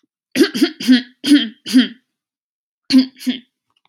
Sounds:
Throat clearing